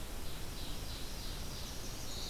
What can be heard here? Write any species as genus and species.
Seiurus aurocapilla, Setophaga pensylvanica